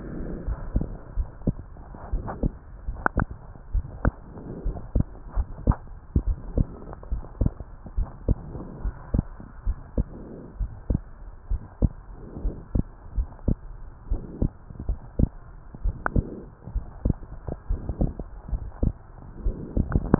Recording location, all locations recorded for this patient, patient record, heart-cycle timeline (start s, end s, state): pulmonary valve (PV)
aortic valve (AV)+pulmonary valve (PV)+tricuspid valve (TV)+mitral valve (MV)
#Age: Child
#Sex: Male
#Height: 130.0 cm
#Weight: 28.0 kg
#Pregnancy status: False
#Murmur: Absent
#Murmur locations: nan
#Most audible location: nan
#Systolic murmur timing: nan
#Systolic murmur shape: nan
#Systolic murmur grading: nan
#Systolic murmur pitch: nan
#Systolic murmur quality: nan
#Diastolic murmur timing: nan
#Diastolic murmur shape: nan
#Diastolic murmur grading: nan
#Diastolic murmur pitch: nan
#Diastolic murmur quality: nan
#Outcome: Normal
#Campaign: 2015 screening campaign
0.00	3.29	unannotated
3.29	3.74	diastole
3.74	3.84	S1
3.84	4.04	systole
4.04	4.14	S2
4.14	4.64	diastole
4.64	4.78	S1
4.78	4.96	systole
4.96	5.08	S2
5.08	5.36	diastole
5.36	5.48	S1
5.48	5.66	systole
5.66	5.76	S2
5.76	6.16	diastole
6.16	6.36	S1
6.36	6.56	systole
6.56	6.68	S2
6.68	7.12	diastole
7.12	7.24	S1
7.24	7.40	systole
7.40	7.52	S2
7.52	7.98	diastole
7.98	8.08	S1
8.08	8.28	systole
8.28	8.38	S2
8.38	8.84	diastole
8.84	8.94	S1
8.94	9.14	systole
9.14	9.24	S2
9.24	9.66	diastole
9.66	9.76	S1
9.76	9.98	systole
9.98	10.08	S2
10.08	10.60	diastole
10.60	10.72	S1
10.72	10.90	systole
10.90	11.02	S2
11.02	11.50	diastole
11.50	11.62	S1
11.62	11.82	systole
11.82	11.92	S2
11.92	12.44	diastole
12.44	12.56	S1
12.56	12.76	systole
12.76	12.86	S2
12.86	13.16	diastole
13.16	13.28	S1
13.28	13.46	systole
13.46	13.58	S2
13.58	14.12	diastole
14.12	14.22	S1
14.22	14.42	systole
14.42	14.52	S2
14.52	14.90	diastole
14.90	14.98	S1
14.98	15.20	systole
15.20	15.30	S2
15.30	15.84	diastole
15.84	20.19	unannotated